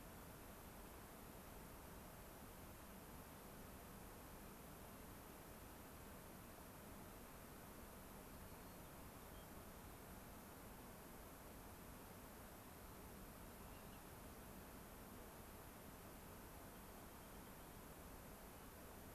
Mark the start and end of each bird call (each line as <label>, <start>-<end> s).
White-crowned Sparrow (Zonotrichia leucophrys), 8.4-9.5 s
Rock Wren (Salpinctes obsoletus), 16.7-17.9 s